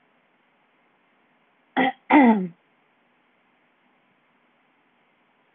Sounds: Throat clearing